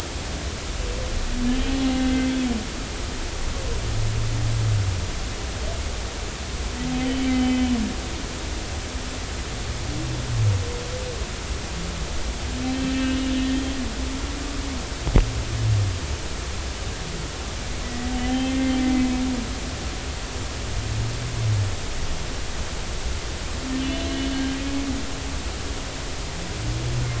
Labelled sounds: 1.9	2.3	humpback whale, 1.5 to 2.1 kHz
7.3	7.7	humpback whale, 3.0 to 3.1 kHz
13.0	13.8	humpback whale, 2.8 to 3.3 kHz
17.8	19.1	humpback whale, 1.9 to 3.2 kHz
23.8	24.1	humpback whale, 2.6 to 3.6 kHz

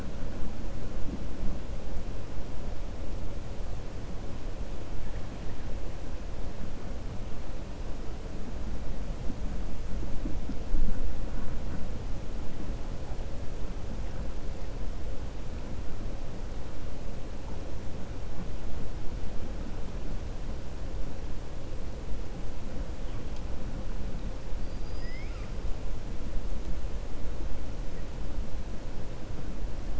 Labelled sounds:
24.6	25.5	killer whale, 1.2 to 5.4 kHz

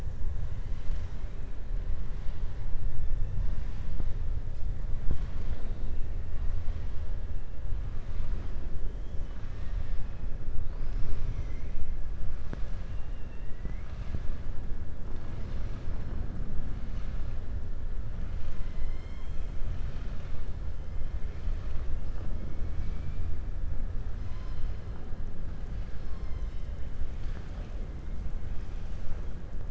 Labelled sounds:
9.2	10.0	killer whale, southern resident, 1.4 to 4.5 kHz
12.8	14.2	killer whale, southern resident, 1.8 to 6.0 kHz

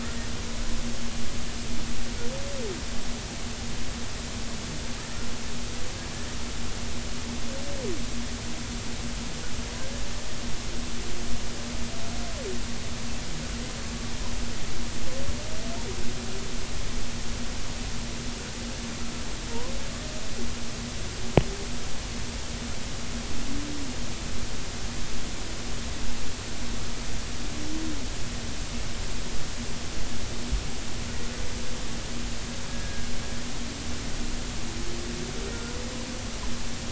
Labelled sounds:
32.7	33.1	humpback whale, 1.6 to 1.8 kHz

